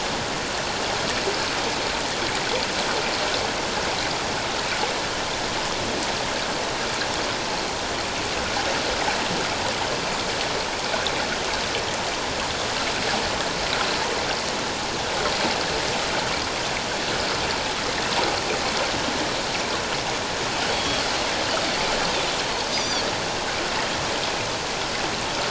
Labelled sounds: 20.7	21.0	Pacific white-sided dolphin, 3.2 to 3.4 kHz
22.7	23.1	Pacific white-sided dolphin, 3.2 to 6.2 kHz

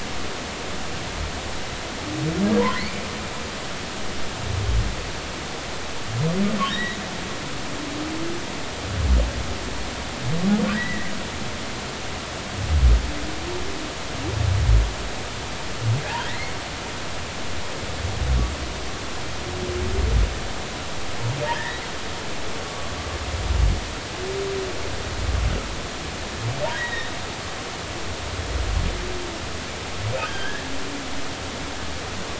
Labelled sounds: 2.7	3.1	humpback whale, 1.8 to 2.5 kHz
6.7	7.0	humpback whale, 1.6 to 4.0 kHz
10.7	11.1	humpback whale, 1.9 to 2.1 kHz
16.2	16.5	humpback whale, 1.9 to 2.2 kHz
21.5	21.8	humpback whale, 1.6 to 2.0 kHz
26.7	27.1	humpback whale, 1.8 to 3.9 kHz
30.2	30.7	humpback whale, 1.4 to 3.3 kHz

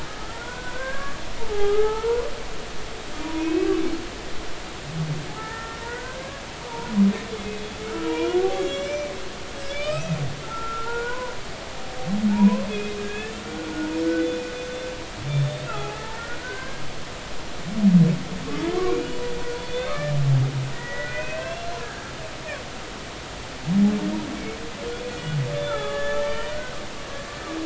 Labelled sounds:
0.4	2.3	humpback whale, 0.80 to 3.3 kHz
3.2	3.7	humpback whale, 0.90 to 2.7 kHz
5.3	9.1	humpback whale, 0.80 to 7.5 kHz
9.6	11.3	humpback whale, 0.86 to 6.0 kHz
12.3	13.7	humpback whale, 0.83 to 2.6 kHz
15.3	16.8	humpback whale, 0.80 to 3.8 kHz
18.8	19.1	humpback whale, 2.2 to 2.5 kHz
19.6	21.7	humpback whale, 1.1 to 5.5 kHz
25.1	26.8	humpback whale, 0.80 to 3.6 kHz

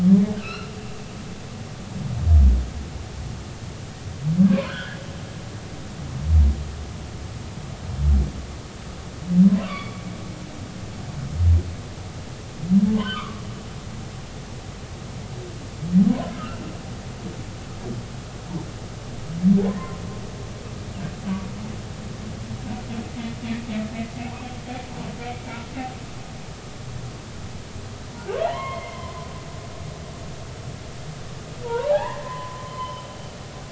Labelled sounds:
0.4	0.7	humpback whale, 1.1 to 4.3 kHz
4.5	5.0	humpback whale, 0.96 to 3.5 kHz
9.4	10.0	humpback whale, 0.96 to 3.5 kHz
12.9	13.4	humpback whale, 0.99 to 3.2 kHz
16.1	16.6	humpback whale, 0.93 to 1.7 kHz
28.2	29.3	humpback whale, 0.80 to 3.3 kHz
31.6	33.0	humpback whale, 0.80 to 3.1 kHz

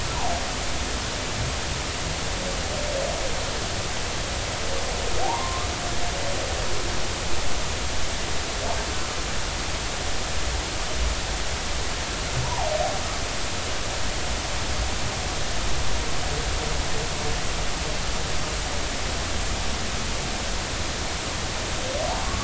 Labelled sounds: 5.2	5.7	humpback whale, 0.80 to 1.2 kHz
12.4	12.7	humpback whale, 0.80 to 1.1 kHz

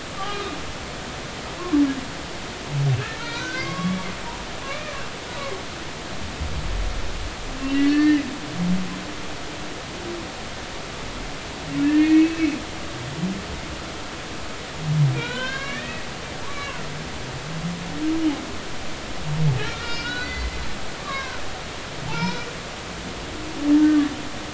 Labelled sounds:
0.2	0.5	humpback whale, 1.1 to 1.3 kHz
3.2	4.1	humpback whale, 0.99 to 6.2 kHz
4.7	4.9	humpback whale, 2.1 to 2.5 kHz
7.6	8.2	humpback whale, 1.7 to 4.6 kHz
11.8	12.6	humpback whale, 1.7 to 2.8 kHz
15.1	16.1	humpback whale, 0.90 to 4.4 kHz
16.4	16.8	humpback whale, 0.90 to 2.4 kHz
19.6	20.7	humpback whale, 1.3 to 5.4 kHz
21.0	21.4	humpback whale, 0.99 to 3.9 kHz
22.1	22.5	humpback whale, 0.80 to 5.4 kHz

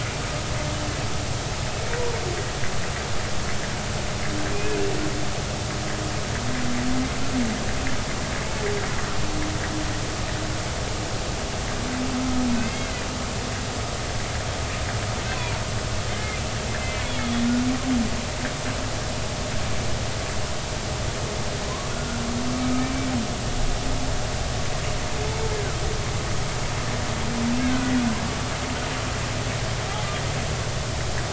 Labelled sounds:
4.5	4.8	humpback whale, 2.4 to 2.6 kHz
12.6	13.1	humpback whale, 1.9 to 2.2 kHz
15.2	15.6	humpback whale, 0.86 to 2.7 kHz
16.1	16.4	humpback whale, 2.0 to 2.2 kHz
16.8	17.1	humpback whale, 2.0 to 2.1 kHz
27.6	27.9	humpback whale, 1.3 to 1.7 kHz

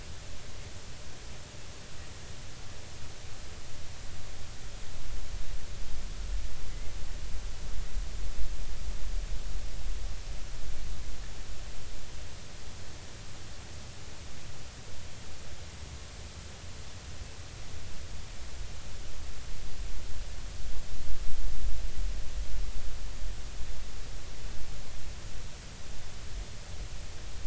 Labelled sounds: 6.7	6.9	killer whale, Bigg's (transient), 1.9 to 2.2 kHz

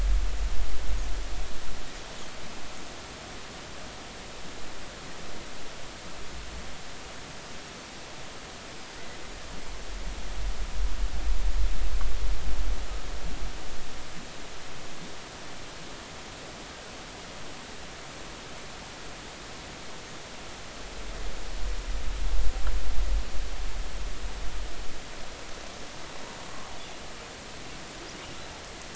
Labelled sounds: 8.7	9.0	killer whale, Bigg's (transient), 4.8 to 5.2 kHz

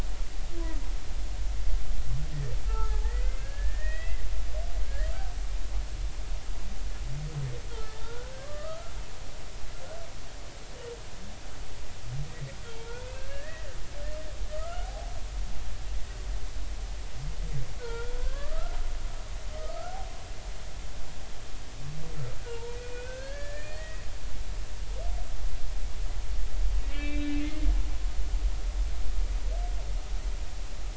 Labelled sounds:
2.7	4.2	humpback whale, 0.80 to 2.8 kHz
4.8	5.1	humpback whale, 1.5 to 2.0 kHz
7.7	8.8	humpback whale, 1.0 to 1.6 kHz
13.3	13.8	humpback whale, 1.6 to 2.0 kHz
14.5	15.1	humpback whale, 0.80 to 1.5 kHz
17.8	18.8	humpback whale, 0.86 to 2.4 kHz
19.6	20.0	humpback whale, 1.2 to 1.5 kHz
22.5	24.0	humpback whale, 0.86 to 4.4 kHz
26.9	27.7	humpback whale, 1.7 to 3.9 kHz

